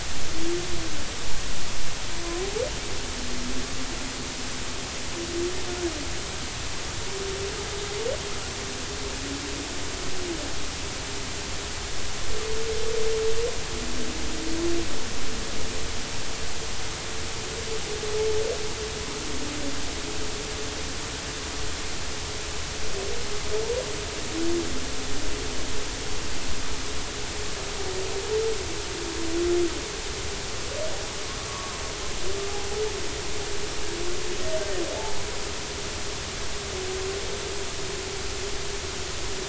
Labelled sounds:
31.5	31.8	humpback whale, 0.99 to 1.2 kHz

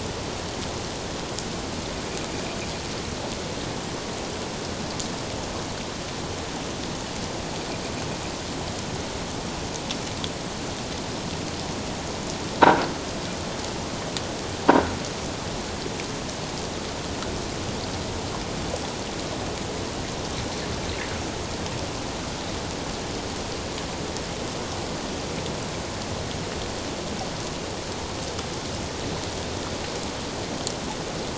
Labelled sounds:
14.7	14.9	croaking sound likely from a nearby submerged object, 1.3 to 1.6 kHz

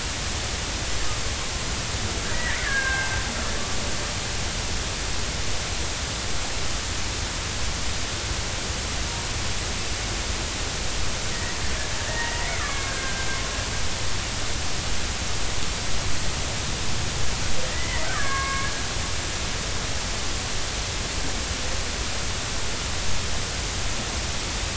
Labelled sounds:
2.3	3.2	killer whale, Bigg's (transient), 1.5 to 2.7 kHz
12.1	13.3	killer whale, Bigg's (transient), 1.1 to 2.3 kHz
17.7	18.7	killer whale, Bigg's (transient), 1.0 to 2.3 kHz

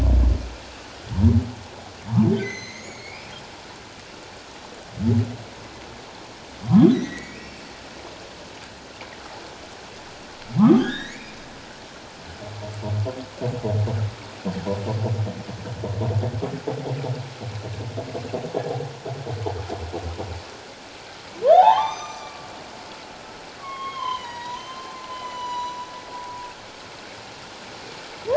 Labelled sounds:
2.3	3.3	humpback whale, 1.8 to 6.9 kHz
6.9	7.6	humpback whale, 1.8 to 6.1 kHz
10.6	11.4	humpback whale, 0.97 to 4.2 kHz
18.6	18.8	humpback whale, 0.78 to 0.84 kHz
21.4	22.5	humpback whale, 0.78 to 6.2 kHz
23.6	24.6	humpback whale, 0.88 to 4.0 kHz
25.1	25.8	humpback whale, 0.88 to 7.1 kHz

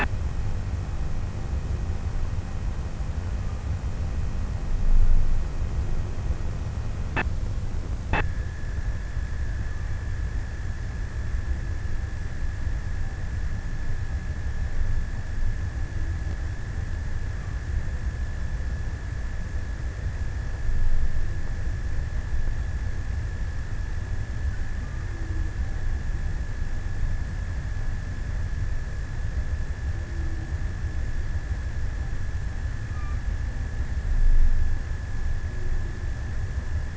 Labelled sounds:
32.1	33.9	killer whale, offshore, 0.44 to 3.2 kHz

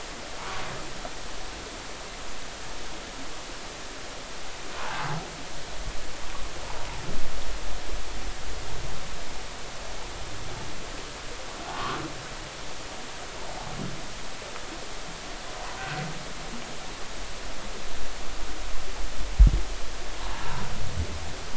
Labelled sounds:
4.8	5.2	humpback whale, 0.80 to 1.2 kHz
11.7	12.0	humpback whale, 0.96 to 1.3 kHz
15.8	16.0	humpback whale, 1.4 to 1.6 kHz

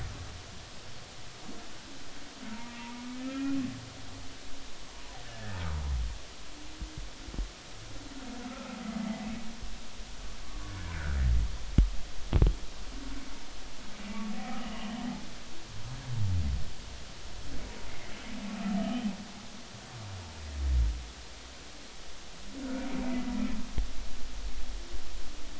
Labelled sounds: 3.2	3.6	humpback whale, 1.3 to 2.5 kHz
5.3	5.6	humpback whale, 1.7 to 1.9 kHz
8.5	8.8	humpback whale, 1.2 to 1.4 kHz
10.4	11.2	humpback whale, 0.99 to 1.8 kHz
14.4	15.1	humpback whale, 0.80 to 3.2 kHz
18.8	19.1	humpback whale, 1.2 to 3.2 kHz

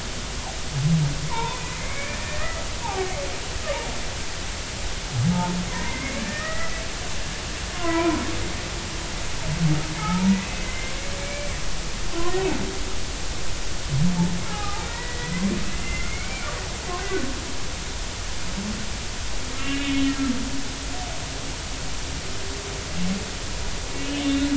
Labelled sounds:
1.3	3.1	humpback whale, 0.80 to 2.6 kHz
5.7	6.8	humpback whale, 0.90 to 2.4 kHz
7.7	8.2	humpback whale, 0.86 to 2.5 kHz
10.0	11.5	humpback whale, 0.80 to 2.5 kHz
14.5	15.5	humpback whale, 0.80 to 2.1 kHz
15.7	16.5	humpback whale, 2.0 to 2.8 kHz
17.0	17.3	humpback whale, 1.4 to 1.6 kHz
19.5	20.2	humpback whale, 2.1 to 3.1 kHz
23.9	24.5	humpback whale, 2.7 to 3.8 kHz

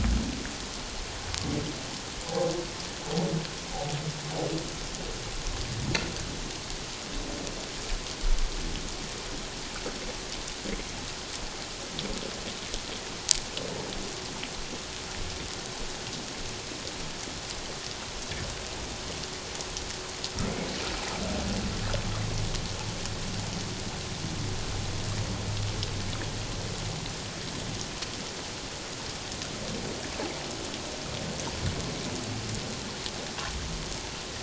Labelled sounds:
2.2	2.5	humpback whale, 0.78 to 0.88 kHz

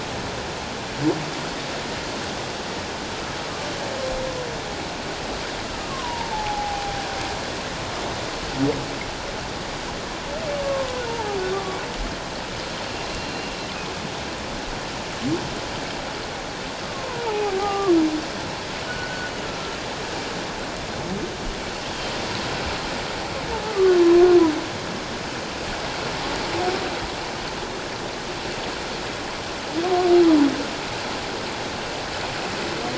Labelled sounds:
5.7	7.0	humpback whale, 0.78 to 1.4 kHz
10.6	11.8	humpback whale, 0.78 to 1.2 kHz
13.1	13.5	humpback whale, 2.7 to 4.2 kHz
16.8	17.9	humpback whale, 0.78 to 1.3 kHz
18.9	19.8	humpback whale, 1.3 to 1.6 kHz

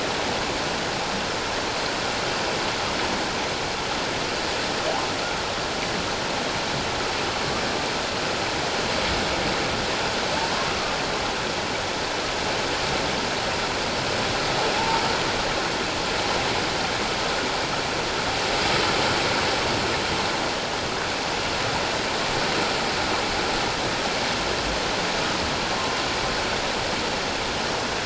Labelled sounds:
14.7	15.0	humpback whale, 0.81 to 0.97 kHz

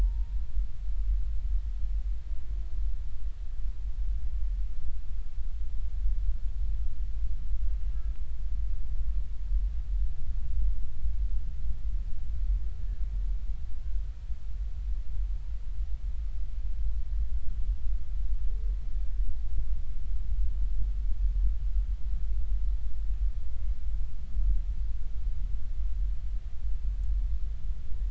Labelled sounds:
0.0	0.4	humpback whale, 0.86 to 1.0 kHz

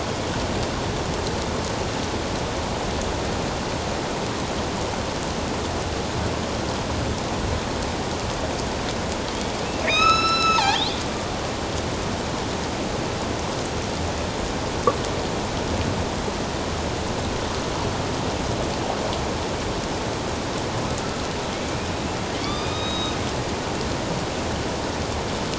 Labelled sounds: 9.8	11.0	killer whale, northern resident, A clan, AB subclan, 0.78 to 6.7 kHz
21.6	21.9	killer whale, northern resident, A clan, AB subclan, 2.2 to 2.5 kHz
22.4	23.2	killer whale, northern resident, A clan, AB subclan, 2.4 to 6.4 kHz

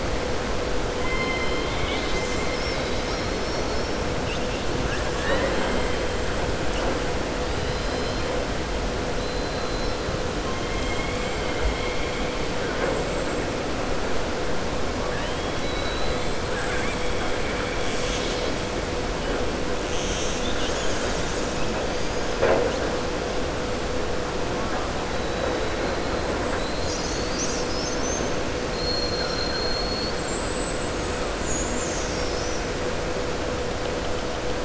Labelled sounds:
16.5	17.0	killer whale, southern resident, 1.1 to 3.3 kHz
28.7	30.2	killer whale, southern resident, 3.5 to 5.6 kHz

